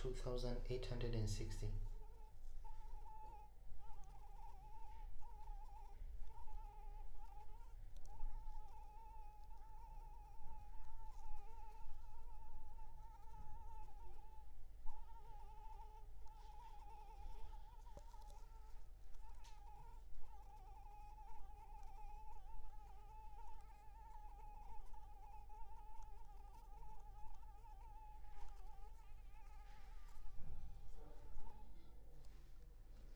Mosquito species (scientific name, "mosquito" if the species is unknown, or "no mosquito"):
Anopheles arabiensis